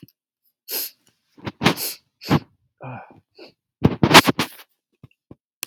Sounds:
Sniff